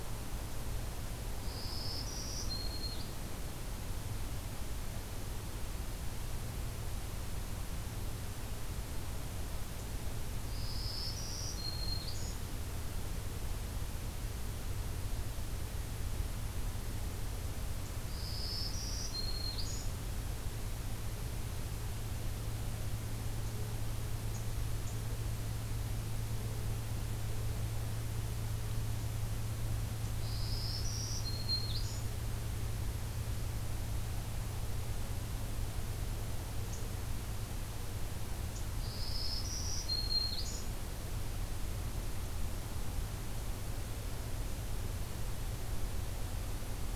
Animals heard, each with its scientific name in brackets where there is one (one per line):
Black-throated Green Warbler (Setophaga virens)